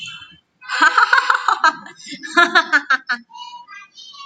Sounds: Laughter